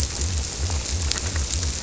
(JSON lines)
{"label": "biophony", "recorder": "SoundTrap 300"}